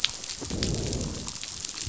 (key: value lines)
label: biophony, growl
recorder: SoundTrap 500